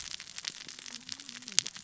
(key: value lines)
label: biophony, cascading saw
recorder: SoundTrap 600 or HydroMoth